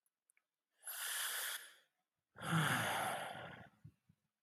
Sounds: Sigh